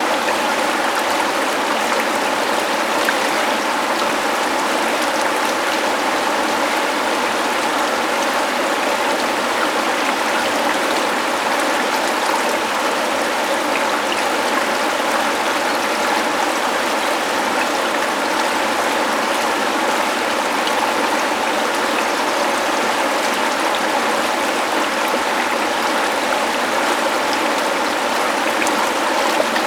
Is the water running?
yes